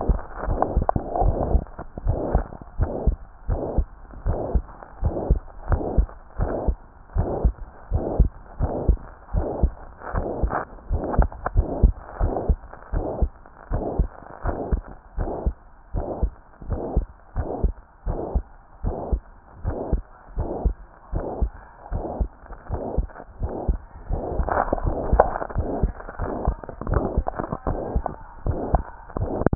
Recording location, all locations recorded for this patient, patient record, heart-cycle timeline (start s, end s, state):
tricuspid valve (TV)
aortic valve (AV)+pulmonary valve (PV)+tricuspid valve (TV)+mitral valve (MV)
#Age: Child
#Sex: Female
#Height: 128.0 cm
#Weight: 24.3 kg
#Pregnancy status: False
#Murmur: Present
#Murmur locations: aortic valve (AV)+mitral valve (MV)+pulmonary valve (PV)+tricuspid valve (TV)
#Most audible location: tricuspid valve (TV)
#Systolic murmur timing: Holosystolic
#Systolic murmur shape: Plateau
#Systolic murmur grading: III/VI or higher
#Systolic murmur pitch: High
#Systolic murmur quality: Blowing
#Diastolic murmur timing: nan
#Diastolic murmur shape: nan
#Diastolic murmur grading: nan
#Diastolic murmur pitch: nan
#Diastolic murmur quality: nan
#Outcome: Normal
#Campaign: 2015 screening campaign
0.00	2.75	unannotated
2.75	2.94	S1
2.94	3.02	systole
3.02	3.14	S2
3.14	3.48	diastole
3.48	3.60	S1
3.60	3.76	systole
3.76	3.88	S2
3.88	4.26	diastole
4.26	4.38	S1
4.38	4.50	systole
4.50	4.64	S2
4.64	5.02	diastole
5.02	5.16	S1
5.16	5.26	systole
5.26	5.38	S2
5.38	5.68	diastole
5.68	5.80	S1
5.80	5.96	systole
5.96	6.08	S2
6.08	6.38	diastole
6.38	6.50	S1
6.50	6.66	systole
6.66	6.78	S2
6.78	7.16	diastole
7.16	7.30	S1
7.30	7.42	systole
7.42	7.54	S2
7.54	7.90	diastole
7.90	8.04	S1
8.04	8.18	systole
8.18	8.30	S2
8.30	8.60	diastole
8.60	8.74	S1
8.74	8.86	systole
8.86	9.02	S2
9.02	9.34	diastole
9.34	9.48	S1
9.48	9.60	systole
9.60	9.74	S2
9.74	10.12	diastole
10.12	10.24	S1
10.24	10.40	systole
10.40	10.52	S2
10.52	10.90	diastole
10.90	11.02	S1
11.02	11.12	systole
11.12	11.26	S2
11.26	11.56	diastole
11.56	11.70	S1
11.70	11.82	systole
11.82	11.92	S2
11.92	12.22	diastole
12.22	12.34	S1
12.34	12.48	systole
12.48	12.60	S2
12.60	12.94	diastole
12.94	13.06	S1
13.06	13.20	systole
13.20	13.32	S2
13.32	13.72	diastole
13.72	13.82	S1
13.82	13.98	systole
13.98	14.10	S2
14.10	14.46	diastole
14.46	14.58	S1
14.58	14.70	systole
14.70	14.84	S2
14.84	15.18	diastole
15.18	15.28	S1
15.28	15.44	systole
15.44	15.56	S2
15.56	15.94	diastole
15.94	16.06	S1
16.06	16.22	systole
16.22	16.34	S2
16.34	16.68	diastole
16.68	16.82	S1
16.82	16.96	systole
16.96	17.04	S2
17.04	17.36	diastole
17.36	17.46	S1
17.46	17.62	systole
17.62	17.74	S2
17.74	18.08	diastole
18.08	18.20	S1
18.20	18.34	systole
18.34	18.46	S2
18.46	18.84	diastole
18.84	18.96	S1
18.96	19.10	systole
19.10	19.20	S2
19.20	19.64	diastole
19.64	19.76	S1
19.76	19.92	systole
19.92	20.04	S2
20.04	20.38	diastole
20.38	20.48	S1
20.48	20.62	systole
20.62	20.76	S2
20.76	21.14	diastole
21.14	21.24	S1
21.24	21.38	systole
21.38	21.52	S2
21.52	21.92	diastole
21.92	22.04	S1
22.04	22.18	systole
22.18	22.28	S2
22.28	22.70	diastole
22.70	22.82	S1
22.82	22.96	systole
22.96	23.10	S2
23.10	23.42	diastole
23.42	23.52	S1
23.52	23.66	systole
23.66	23.80	S2
23.80	24.00	diastole
24.00	29.55	unannotated